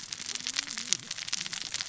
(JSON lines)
{"label": "biophony, cascading saw", "recorder": "SoundTrap 600 or HydroMoth"}